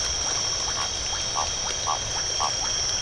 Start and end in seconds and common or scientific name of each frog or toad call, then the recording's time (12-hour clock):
0.2	3.0	Iporanga white-lipped frog
7:30pm